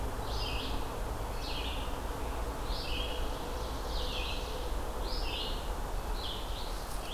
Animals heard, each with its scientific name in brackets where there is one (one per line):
Red-eyed Vireo (Vireo olivaceus)
Ovenbird (Seiurus aurocapilla)